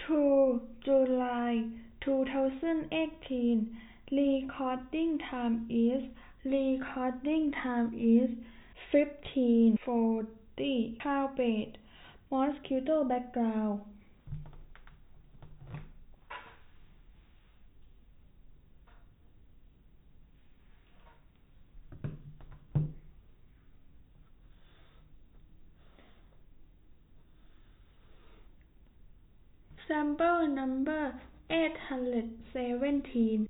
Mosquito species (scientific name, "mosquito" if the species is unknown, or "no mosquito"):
no mosquito